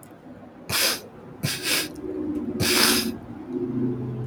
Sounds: Sniff